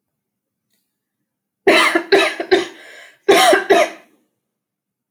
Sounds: Cough